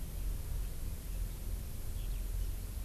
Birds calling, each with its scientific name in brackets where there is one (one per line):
Eurasian Skylark (Alauda arvensis)